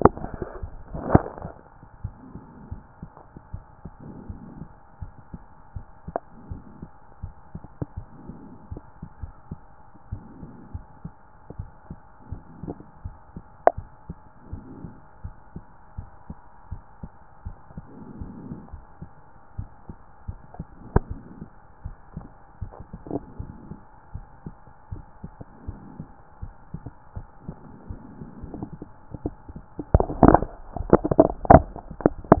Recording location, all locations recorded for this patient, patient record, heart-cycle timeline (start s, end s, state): pulmonary valve (PV)
pulmonary valve (PV)+tricuspid valve (TV)+mitral valve (MV)
#Age: nan
#Sex: Female
#Height: nan
#Weight: nan
#Pregnancy status: True
#Murmur: Absent
#Murmur locations: nan
#Most audible location: nan
#Systolic murmur timing: nan
#Systolic murmur shape: nan
#Systolic murmur grading: nan
#Systolic murmur pitch: nan
#Systolic murmur quality: nan
#Diastolic murmur timing: nan
#Diastolic murmur shape: nan
#Diastolic murmur grading: nan
#Diastolic murmur pitch: nan
#Diastolic murmur quality: nan
#Outcome: Normal
#Campaign: 2014 screening campaign
0.00	1.83	unannotated
1.83	2.02	diastole
2.02	2.14	S1
2.14	2.32	systole
2.32	2.42	S2
2.42	2.70	diastole
2.70	2.82	S1
2.82	3.00	systole
3.00	3.10	S2
3.10	3.52	diastole
3.52	3.64	S1
3.64	3.84	systole
3.84	3.92	S2
3.92	4.28	diastole
4.28	4.40	S1
4.40	4.56	systole
4.56	4.68	S2
4.68	5.00	diastole
5.00	5.12	S1
5.12	5.32	systole
5.32	5.42	S2
5.42	5.74	diastole
5.74	5.86	S1
5.86	6.06	systole
6.06	6.16	S2
6.16	6.48	diastole
6.48	6.62	S1
6.62	6.80	systole
6.80	6.90	S2
6.90	7.22	diastole
7.22	32.40	unannotated